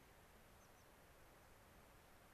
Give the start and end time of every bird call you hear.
[0.53, 0.83] American Pipit (Anthus rubescens)

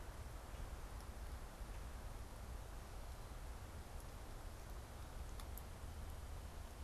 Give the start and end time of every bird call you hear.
[0.00, 0.86] Common Grackle (Quiscalus quiscula)

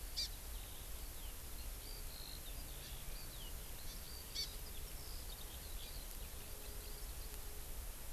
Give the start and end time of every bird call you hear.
[0.00, 7.37] Eurasian Skylark (Alauda arvensis)
[0.17, 0.27] Hawaii Amakihi (Chlorodrepanis virens)
[3.87, 3.97] Hawaii Amakihi (Chlorodrepanis virens)
[4.37, 4.47] Hawaii Amakihi (Chlorodrepanis virens)

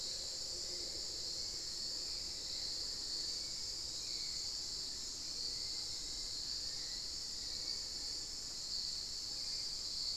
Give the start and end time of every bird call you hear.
[0.00, 10.10] Spot-winged Antshrike (Pygiptila stellaris)
[0.00, 10.17] Hauxwell's Thrush (Turdus hauxwelli)
[1.30, 8.90] Black-faced Antthrush (Formicarius analis)

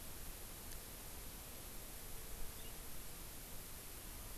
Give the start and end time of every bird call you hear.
[2.52, 2.72] House Finch (Haemorhous mexicanus)

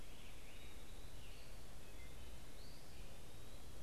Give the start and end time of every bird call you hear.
[0.00, 3.83] Eastern Wood-Pewee (Contopus virens)

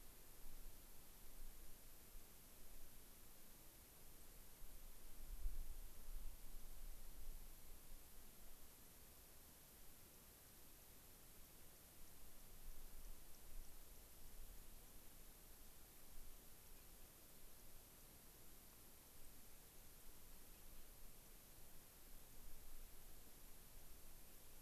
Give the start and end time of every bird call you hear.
[9.73, 15.03] unidentified bird

